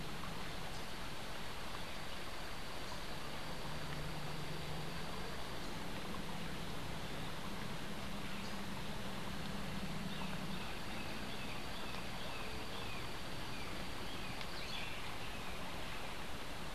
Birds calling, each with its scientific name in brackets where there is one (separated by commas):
Brown Jay (Psilorhinus morio)